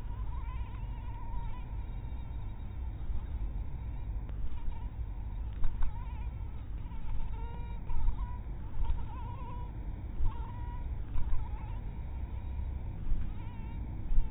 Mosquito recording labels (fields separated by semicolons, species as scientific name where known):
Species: mosquito; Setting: cup